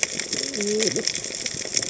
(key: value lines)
label: biophony, cascading saw
recorder: HydroMoth